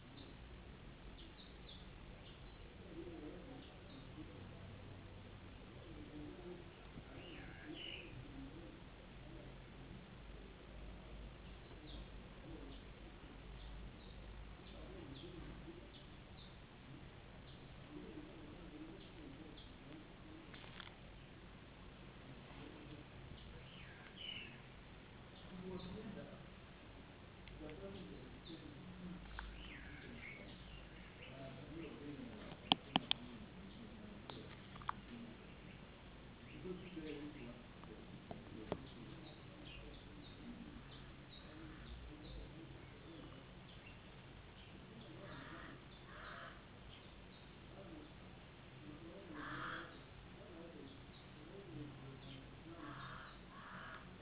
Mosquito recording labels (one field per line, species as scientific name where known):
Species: no mosquito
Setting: insect culture